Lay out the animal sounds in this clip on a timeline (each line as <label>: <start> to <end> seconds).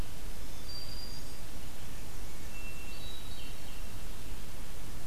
Black-throated Green Warbler (Setophaga virens): 0.0 to 1.4 seconds
Hermit Thrush (Catharus guttatus): 2.4 to 4.3 seconds